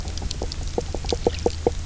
{"label": "biophony, knock croak", "recorder": "SoundTrap 300"}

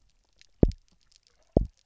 {"label": "biophony, double pulse", "recorder": "SoundTrap 300"}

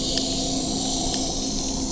{"label": "anthrophony, boat engine", "recorder": "SoundTrap 300"}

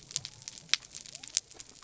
{"label": "biophony", "recorder": "SoundTrap 300"}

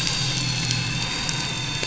{"label": "anthrophony, boat engine", "recorder": "SoundTrap 500"}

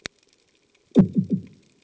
{"label": "anthrophony, bomb", "recorder": "HydroMoth"}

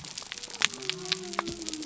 {"label": "biophony", "recorder": "SoundTrap 300"}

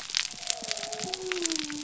{"label": "biophony", "recorder": "SoundTrap 300"}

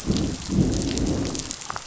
{"label": "biophony, growl", "recorder": "SoundTrap 500"}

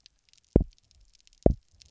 {"label": "biophony, double pulse", "recorder": "SoundTrap 300"}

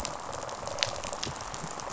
{"label": "biophony, rattle response", "recorder": "SoundTrap 500"}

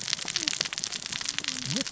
{"label": "biophony, cascading saw", "recorder": "SoundTrap 600 or HydroMoth"}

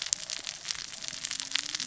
{"label": "biophony, cascading saw", "recorder": "SoundTrap 600 or HydroMoth"}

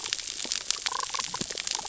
{"label": "biophony, damselfish", "recorder": "SoundTrap 600 or HydroMoth"}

